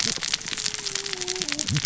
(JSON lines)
{"label": "biophony, cascading saw", "recorder": "SoundTrap 600 or HydroMoth"}